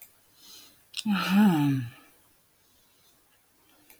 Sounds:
Sigh